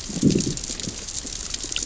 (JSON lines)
{"label": "biophony, growl", "recorder": "SoundTrap 600 or HydroMoth"}